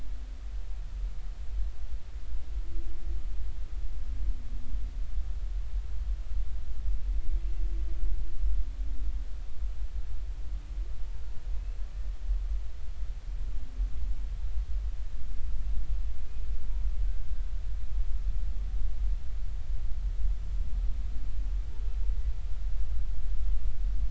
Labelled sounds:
16.2	16.5	humpback whale, 2.4 to 2.6 kHz

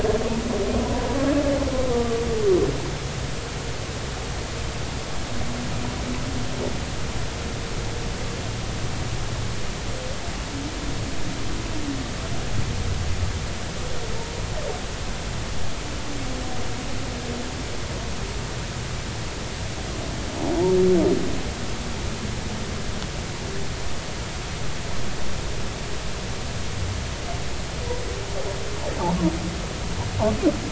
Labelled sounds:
1.9	2.2	humpback whale, 1.1 to 1.2 kHz

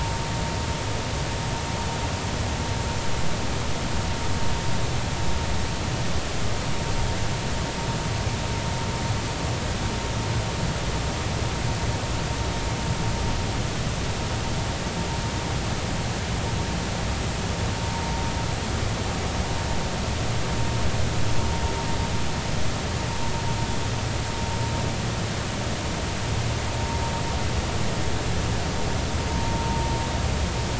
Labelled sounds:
29.3	29.8	vessel noise, 0.90 to 1.1 kHz

